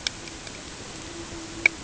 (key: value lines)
label: ambient
recorder: HydroMoth